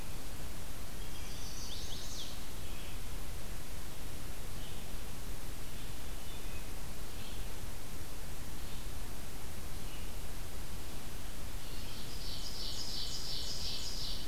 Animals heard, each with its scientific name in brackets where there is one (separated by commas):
Ovenbird (Seiurus aurocapilla), Chestnut-sided Warbler (Setophaga pensylvanica), Red-eyed Vireo (Vireo olivaceus), Wood Thrush (Hylocichla mustelina)